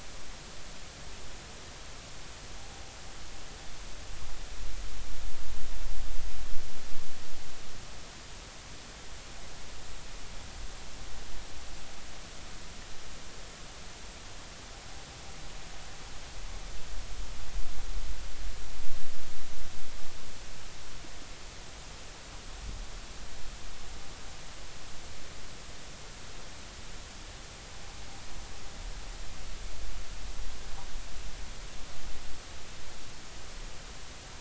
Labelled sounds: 2.6	2.9	vessel noise, 0.80 to 0.90 kHz

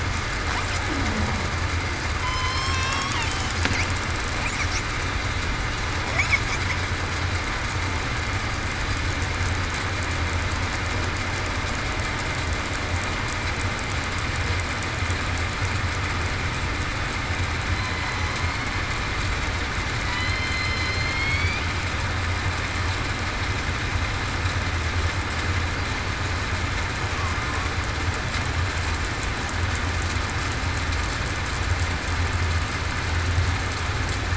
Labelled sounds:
2.2	3.1	killer whale, southern resident, 3.0 to 5.7 kHz
20.0	20.4	killer whale, southern resident, 1.9 to 2.2 kHz
21.0	21.6	killer whale, southern resident, 2.1 to 3.5 kHz

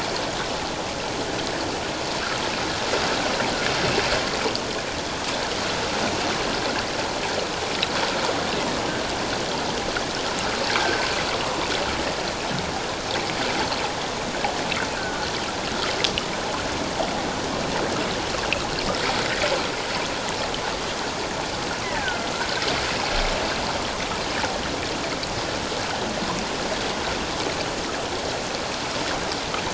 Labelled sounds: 10.8	11.0	killer whale, offshore, call OFF17, 1.5 to 1.7 kHz
14.9	15.3	killer whale, offshore, call OFF17, 1.4 to 1.7 kHz
21.8	22.3	killer whale, offshore, call OFF17, 1.3 to 2.1 kHz

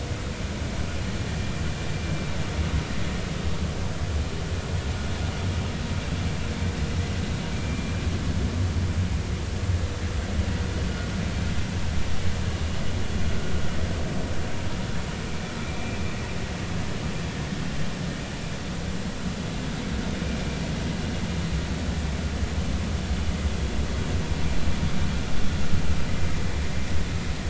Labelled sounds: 7.6	7.9	vessel noise, 2.2 to 2.5 kHz

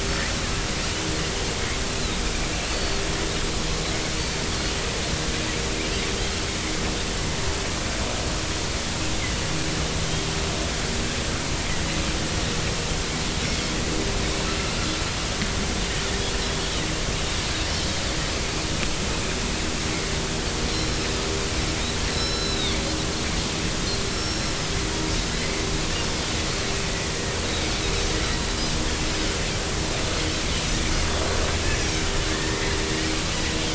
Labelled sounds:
2.7	3.0	Pacific white-sided dolphin, 4.3 to 4.5 kHz
4.1	4.4	Pacific white-sided dolphin, 4.3 to 4.7 kHz
20.7	21.0	Pacific white-sided dolphin, 4.0 to 5.6 kHz
22.0	22.8	Pacific white-sided dolphin, 3.3 to 5.5 kHz
24.1	24.7	Pacific white-sided dolphin, 4.0 to 5.5 kHz
31.7	32.6	Pacific white-sided dolphin, 1.4 to 6.0 kHz

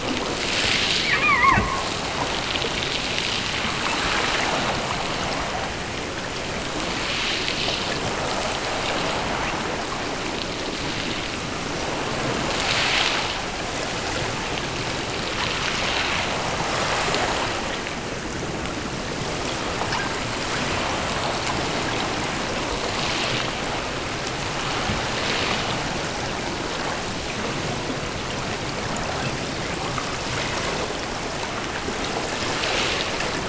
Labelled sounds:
1.1	2.0	killer whale, offshore, 0.75 to 2.6 kHz

